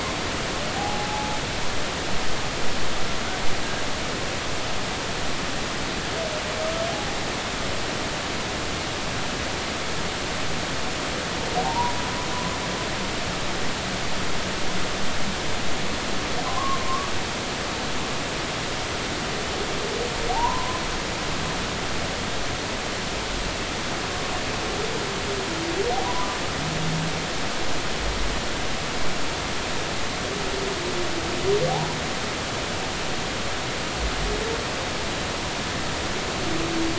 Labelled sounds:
0.8	1.4	humpback whale, 0.80 to 0.90 kHz
11.6	12.0	humpback whale, 0.80 to 1.1 kHz
16.5	16.8	humpback whale, 0.96 to 1.2 kHz
20.3	20.8	humpback whale, 0.80 to 1.1 kHz
26.0	26.4	humpback whale, 0.93 to 1.1 kHz

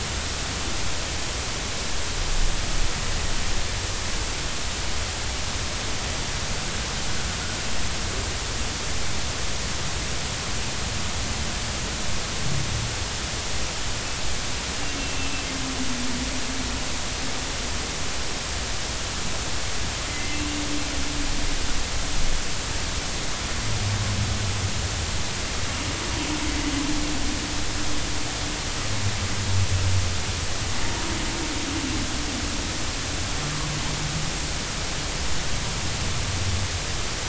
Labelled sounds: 15.0	15.3	humpback whale, 2.6 to 2.8 kHz
20.1	20.4	humpback whale, 2.0 to 2.1 kHz

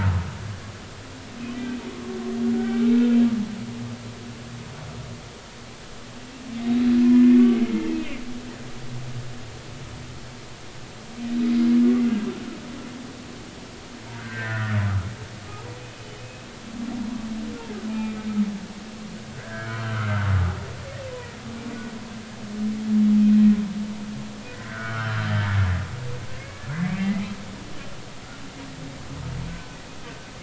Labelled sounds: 1.9	2.9	humpback whale, 1.1 to 2.4 kHz
7.1	7.4	humpback whale, 1.7 to 1.9 kHz
7.9	8.2	humpback whale, 2.0 to 2.6 kHz
14.2	14.8	humpback whale, 1.1 to 2.0 kHz
16.2	16.5	humpback whale, 2.5 to 2.7 kHz
17.9	18.2	humpback whale, 2.3 to 2.5 kHz
19.3	20.1	humpback whale, 0.99 to 1.8 kHz
24.6	25.3	humpback whale, 1.1 to 3.2 kHz
26.4	27.3	humpback whale, 1.6 to 2.3 kHz

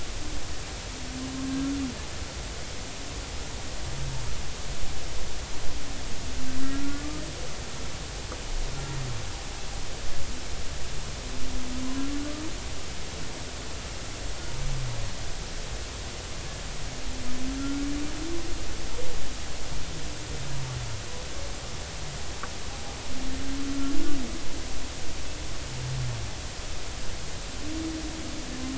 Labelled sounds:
6.6	7.0	humpback whale, 1.3 to 1.5 kHz
17.6	17.8	humpback whale, 1.3 to 1.4 kHz

